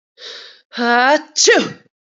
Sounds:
Sneeze